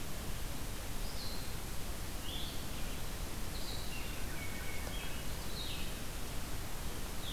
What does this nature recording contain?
Blue-headed Vireo, Hermit Thrush